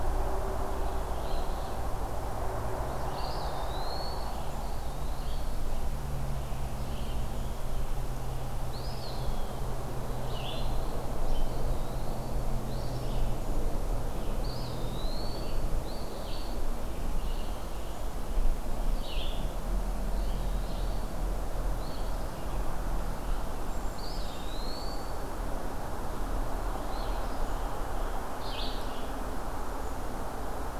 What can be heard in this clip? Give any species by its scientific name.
Vireo olivaceus, Sayornis phoebe, Contopus virens, Piranga olivacea